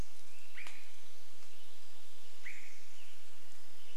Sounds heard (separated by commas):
Swainson's Thrush call, Western Tanager song